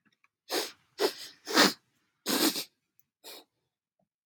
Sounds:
Sniff